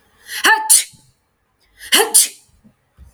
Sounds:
Sneeze